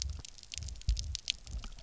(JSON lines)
{"label": "biophony, double pulse", "recorder": "SoundTrap 300"}